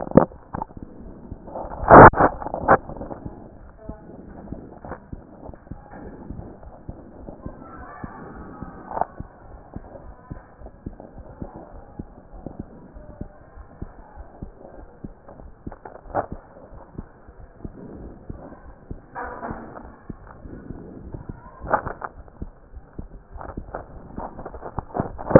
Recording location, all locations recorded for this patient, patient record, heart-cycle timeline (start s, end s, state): aortic valve (AV)
aortic valve (AV)+pulmonary valve (PV)+tricuspid valve (TV)+mitral valve (MV)
#Age: Child
#Sex: Female
#Height: 129.0 cm
#Weight: 27.7 kg
#Pregnancy status: False
#Murmur: Absent
#Murmur locations: nan
#Most audible location: nan
#Systolic murmur timing: nan
#Systolic murmur shape: nan
#Systolic murmur grading: nan
#Systolic murmur pitch: nan
#Systolic murmur quality: nan
#Diastolic murmur timing: nan
#Diastolic murmur shape: nan
#Diastolic murmur grading: nan
#Diastolic murmur pitch: nan
#Diastolic murmur quality: nan
#Outcome: Abnormal
#Campaign: 2014 screening campaign
0.00	3.24	unannotated
3.24	3.38	S1
3.38	3.60	systole
3.60	3.68	S2
3.68	3.88	diastole
3.88	3.98	S1
3.98	4.12	systole
4.12	4.20	S2
4.20	4.40	diastole
4.40	4.50	S1
4.50	4.64	systole
4.64	4.72	S2
4.72	4.88	diastole
4.88	4.98	S1
4.98	5.12	systole
5.12	5.22	S2
5.22	5.42	diastole
5.42	5.54	S1
5.54	5.70	systole
5.70	5.78	S2
5.78	5.98	diastole
5.98	6.12	S1
6.12	6.30	systole
6.30	6.46	S2
6.46	6.62	diastole
6.62	6.72	S1
6.72	6.88	systole
6.88	6.98	S2
6.98	7.18	diastole
7.18	7.30	S1
7.30	7.44	systole
7.44	7.56	S2
7.56	7.76	diastole
7.76	7.88	S1
7.88	8.04	systole
8.04	8.14	S2
8.14	8.34	diastole
8.34	8.48	S1
8.48	8.62	systole
8.62	8.74	S2
8.74	8.94	diastole
8.94	9.06	S1
9.06	9.20	systole
9.20	9.30	S2
9.30	9.50	diastole
9.50	9.60	S1
9.60	9.76	systole
9.76	9.86	S2
9.86	10.04	diastole
10.04	10.14	S1
10.14	10.32	systole
10.32	10.42	S2
10.42	10.60	diastole
10.60	10.70	S1
10.70	10.86	systole
10.86	10.96	S2
10.96	11.16	diastole
11.16	11.26	S1
11.26	11.42	systole
11.42	11.52	S2
11.52	11.74	diastole
11.74	11.84	S1
11.84	12.00	systole
12.00	12.10	S2
12.10	12.34	diastole
12.34	12.44	S1
12.44	12.60	systole
12.60	12.70	S2
12.70	12.92	diastole
12.92	13.02	S1
13.02	13.20	systole
13.20	13.32	S2
13.32	13.56	diastole
13.56	13.66	S1
13.66	13.78	systole
13.78	13.92	S2
13.92	14.16	diastole
14.16	14.26	S1
14.26	14.42	systole
14.42	14.54	S2
14.54	14.78	diastole
14.78	14.88	S1
14.88	15.04	systole
15.04	15.16	S2
15.16	15.40	diastole
15.40	15.52	S1
15.52	15.74	systole
15.74	15.84	S2
15.84	16.06	diastole
16.06	16.24	S1
16.24	16.42	systole
16.42	16.50	S2
16.50	16.72	diastole
16.72	16.82	S1
16.82	16.98	systole
16.98	17.08	S2
17.08	17.30	diastole
17.30	17.44	S1
17.44	17.64	systole
17.64	17.76	S2
17.76	17.96	diastole
17.96	18.12	S1
18.12	18.30	systole
18.30	18.42	S2
18.42	18.64	diastole
18.64	18.74	S1
18.74	18.90	systole
18.90	19.02	S2
19.02	19.22	diastole
19.22	19.34	S1
19.34	19.48	systole
19.48	19.62	S2
19.62	19.84	diastole
19.84	19.94	S1
19.94	20.10	systole
20.10	20.22	S2
20.22	20.42	diastole
20.42	20.52	S1
20.52	20.68	systole
20.68	20.82	S2
20.82	20.97	diastole
20.97	25.39	unannotated